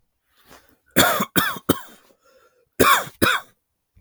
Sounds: Cough